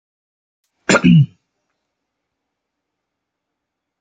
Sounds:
Throat clearing